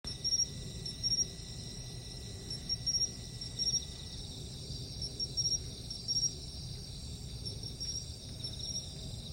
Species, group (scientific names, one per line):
Xenogryllus marmoratus
Orthoptera